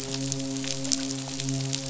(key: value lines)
label: biophony, midshipman
recorder: SoundTrap 500